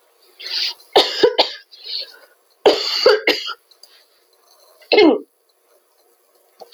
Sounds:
Throat clearing